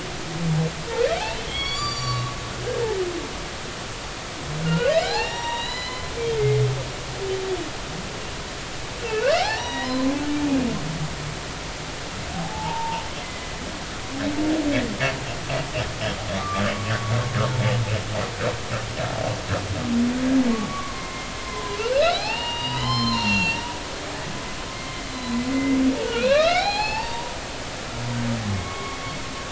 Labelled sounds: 1.2	2.3	humpback whale, 0.80 to 7.1 kHz
4.6	6.1	humpback whale, 0.80 to 7.1 kHz
6.4	6.6	humpback whale, 2.0 to 2.2 kHz
9.3	10.1	humpback whale, 0.80 to 5.9 kHz
12.3	13.5	humpback whale, 0.80 to 2.1 kHz
20.5	24.2	humpback whale, 0.80 to 5.3 kHz
24.7	25.8	humpback whale, 2.0 to 4.1 kHz
26.0	27.3	humpback whale, 0.80 to 4.7 kHz
28.5	29.0	humpback whale, 1.0 to 2.2 kHz

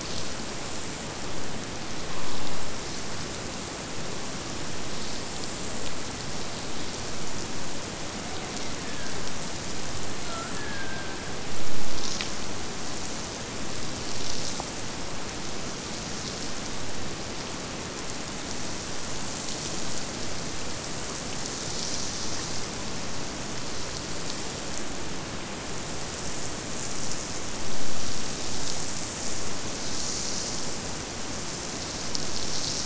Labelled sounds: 8.4	9.3	killer whale, Bigg's (transient), Gulf of Alaska transient, 1.4 to 2.4 kHz
10.2	11.3	killer whale, Bigg's (transient), Gulf of Alaska transient, 0.50 to 1.9 kHz

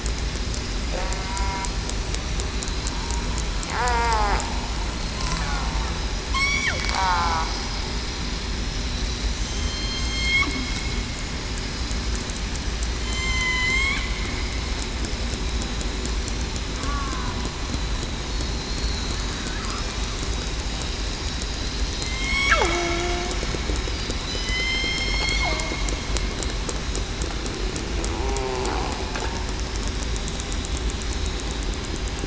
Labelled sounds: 1.2	1.7	killer whale, southern resident, 0.94 to 1.0 kHz
3.7	4.4	killer whale, southern resident, 0.45 to 1.3 kHz
6.3	6.7	killer whale, southern resident, 3.0 to 3.5 kHz
7.0	7.4	killer whale, southern resident, 0.80 to 0.98 kHz
9.3	10.4	killer whale, southern resident, 4.1 to 8.0 kHz
13.0	14.1	killer whale, southern resident, 0.98 to 6.3 kHz
16.8	17.4	killer whale, southern resident, 0.96 to 1.5 kHz
18.3	18.6	killer whale, southern resident, 4.2 to 4.4 kHz
19.1	19.9	killer whale, southern resident, 4.3 to 5.3 kHz
22.1	23.3	killer whale, southern resident, 0.30 to 3.3 kHz
24.3	25.5	killer whale, southern resident, 3.0 to 7.5 kHz
28.1	28.7	killer whale, southern resident, 0.82 to 0.96 kHz

